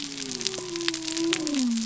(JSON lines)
{"label": "biophony", "recorder": "SoundTrap 300"}